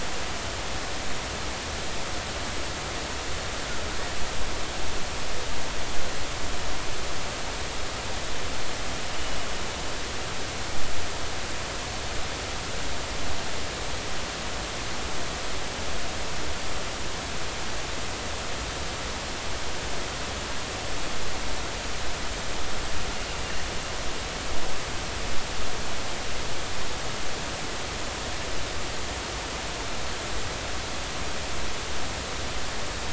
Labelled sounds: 9.0	9.4	killer whale, northern resident, 2.8 to 3.0 kHz

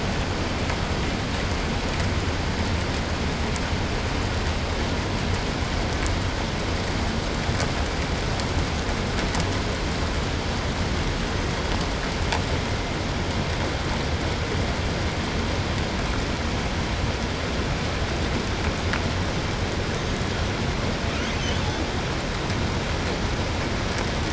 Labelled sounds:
19.7	20.3	killer whale, 1.2 to 6.9 kHz
21.0	22.0	killer whale, southern resident, 0.60 to 7.2 kHz

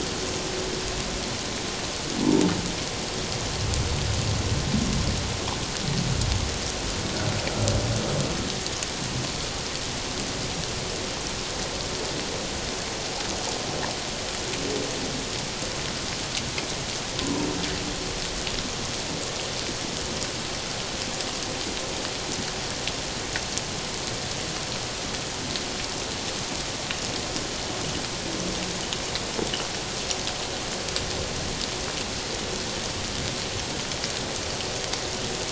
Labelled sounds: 2.2	2.5	humpback whale, 0.84 to 1.1 kHz
17.2	17.5	humpback whale, 0.91 to 1.1 kHz

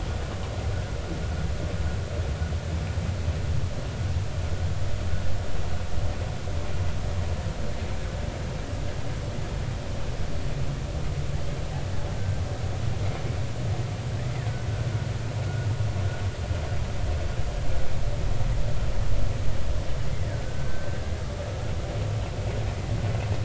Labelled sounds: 12.1	12.4	killer whale, 1.5 to 1.6 kHz
20.4	21.0	killer whale, 1.5 to 1.6 kHz

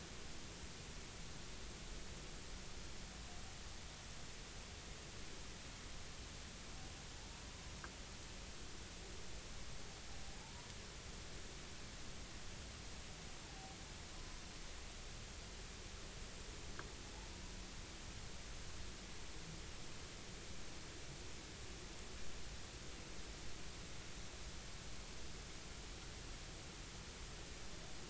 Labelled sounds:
10.4	10.7	humpback whale, 0.83 to 1.0 kHz
13.4	13.8	humpback whale, 0.80 to 0.96 kHz

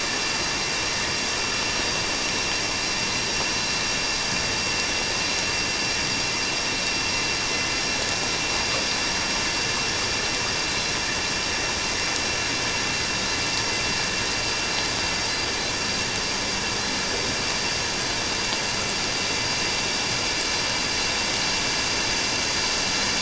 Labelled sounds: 10.7	10.9	vessel noise, 4.0 to 4.2 kHz

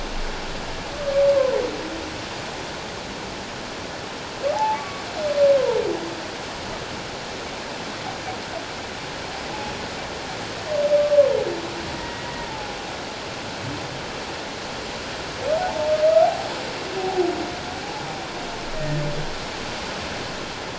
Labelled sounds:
4.5	5.0	humpback whale, 0.78 to 2.3 kHz
11.9	12.8	humpback whale, 0.78 to 2.0 kHz
15.6	16.5	humpback whale, 0.78 to 0.94 kHz
17.0	17.3	humpback whale, 0.78 to 0.88 kHz
18.7	19.0	humpback whale, 1.8 to 1.9 kHz

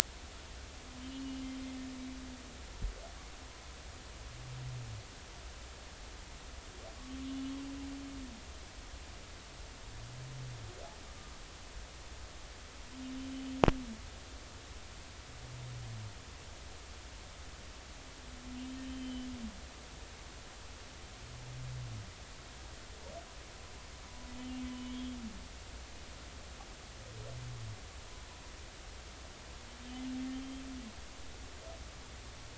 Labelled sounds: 1.0	1.5	humpback whale, 2.8 to 3.2 kHz
7.2	7.4	humpback whale, 2.9 to 3.0 kHz
18.9	19.3	humpback whale, 3.0 to 3.2 kHz
24.7	25.2	humpback whale, 2.9 to 3.4 kHz
30.3	30.6	humpback whale, 3.1 to 3.3 kHz

